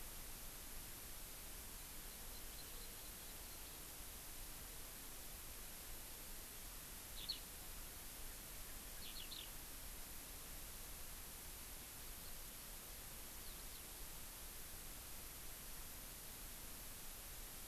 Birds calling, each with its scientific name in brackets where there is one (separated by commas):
Eurasian Skylark (Alauda arvensis), Hawaii Amakihi (Chlorodrepanis virens)